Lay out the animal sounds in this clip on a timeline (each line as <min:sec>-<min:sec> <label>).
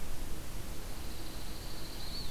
0:00.7-0:02.3 Pine Warbler (Setophaga pinus)